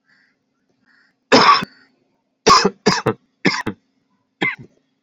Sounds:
Cough